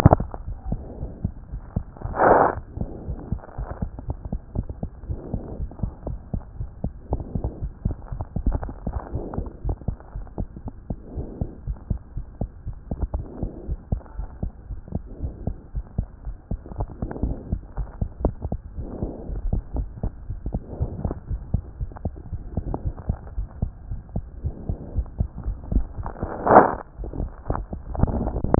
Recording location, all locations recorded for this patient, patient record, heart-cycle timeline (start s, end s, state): aortic valve (AV)
aortic valve (AV)+pulmonary valve (PV)+tricuspid valve (TV)+mitral valve (MV)
#Age: Child
#Sex: Male
#Height: 92.0 cm
#Weight: 14.9 kg
#Pregnancy status: False
#Murmur: Absent
#Murmur locations: nan
#Most audible location: nan
#Systolic murmur timing: nan
#Systolic murmur shape: nan
#Systolic murmur grading: nan
#Systolic murmur pitch: nan
#Systolic murmur quality: nan
#Diastolic murmur timing: nan
#Diastolic murmur shape: nan
#Diastolic murmur grading: nan
#Diastolic murmur pitch: nan
#Diastolic murmur quality: nan
#Outcome: Normal
#Campaign: 2014 screening campaign
0.00	9.64	unannotated
9.64	9.75	S1
9.75	9.88	systole
9.88	9.96	S2
9.96	10.16	diastole
10.16	10.24	S1
10.24	10.38	systole
10.38	10.48	S2
10.48	10.66	diastole
10.66	10.74	S1
10.74	10.88	systole
10.88	10.96	S2
10.96	11.16	diastole
11.16	11.26	S1
11.26	11.40	systole
11.40	11.48	S2
11.48	11.66	diastole
11.66	11.78	S1
11.78	11.90	systole
11.90	12.00	S2
12.00	12.16	diastole
12.16	12.26	S1
12.26	12.40	systole
12.40	12.50	S2
12.50	12.68	diastole
12.68	12.76	S1
12.76	12.91	systole
12.91	12.98	S2
12.98	13.14	diastole
13.14	13.24	S1
13.24	13.40	systole
13.40	13.50	S2
13.50	13.68	diastole
13.68	13.78	S1
13.78	13.92	systole
13.92	14.00	S2
14.00	14.18	diastole
14.18	14.28	S1
14.28	14.42	systole
14.42	14.52	S2
14.52	14.70	diastole
14.70	14.80	S1
14.80	14.94	systole
14.94	15.02	S2
15.02	15.22	diastole
15.22	15.32	S1
15.32	15.46	systole
15.46	15.56	S2
15.56	15.74	diastole
15.74	15.84	S1
15.84	15.96	systole
15.96	16.08	S2
16.08	16.26	diastole
16.26	16.36	S1
16.36	16.50	systole
16.50	16.60	S2
16.60	16.78	diastole
16.78	16.88	S1
16.88	17.02	systole
17.02	17.10	S2
17.10	17.26	diastole
17.26	17.36	S1
17.36	17.50	systole
17.50	17.62	S2
17.62	17.78	diastole
17.78	28.59	unannotated